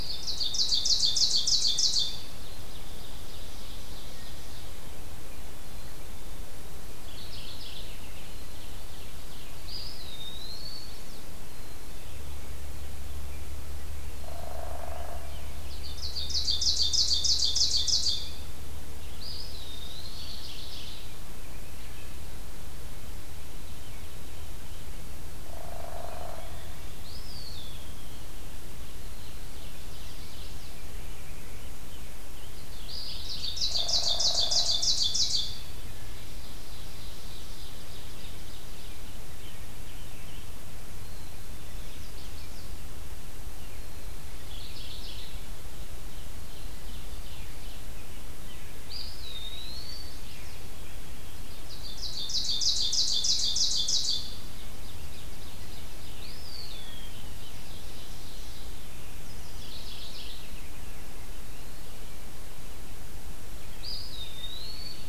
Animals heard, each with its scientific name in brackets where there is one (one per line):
Mourning Warbler (Geothlypis philadelphia)
Black-capped Chickadee (Poecile atricapillus)
Hairy Woodpecker (Dryobates villosus)
Ovenbird (Seiurus aurocapilla)
Chestnut-sided Warbler (Setophaga pensylvanica)
Eastern Wood-Pewee (Contopus virens)
Scarlet Tanager (Piranga olivacea)